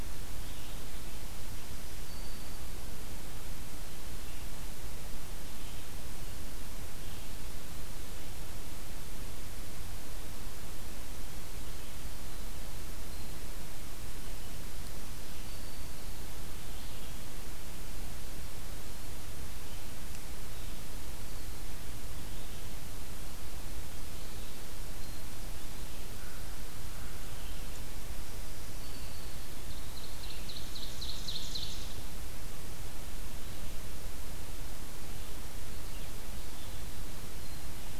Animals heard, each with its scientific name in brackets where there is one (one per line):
Black-throated Green Warbler (Setophaga virens)
Ovenbird (Seiurus aurocapilla)
American Crow (Corvus brachyrhynchos)
Red-eyed Vireo (Vireo olivaceus)